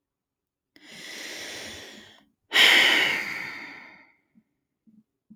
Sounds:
Sigh